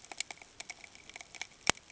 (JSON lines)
{"label": "ambient", "recorder": "HydroMoth"}